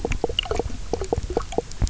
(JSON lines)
{"label": "biophony, knock croak", "recorder": "SoundTrap 300"}